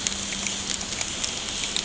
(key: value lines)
label: ambient
recorder: HydroMoth